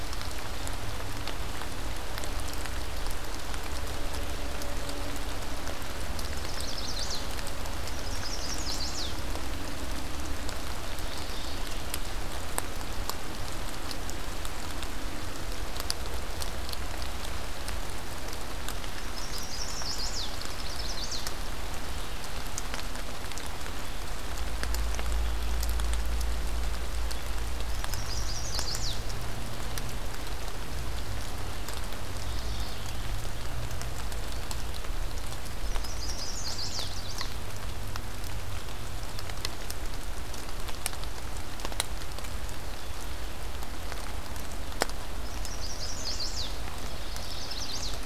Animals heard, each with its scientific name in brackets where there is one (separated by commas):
Chestnut-sided Warbler (Setophaga pensylvanica), Mourning Warbler (Geothlypis philadelphia)